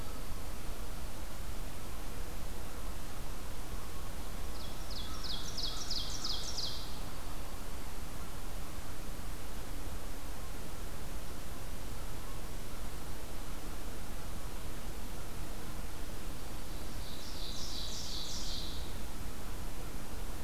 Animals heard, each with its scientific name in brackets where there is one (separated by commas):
American Crow (Corvus brachyrhynchos), Ovenbird (Seiurus aurocapilla)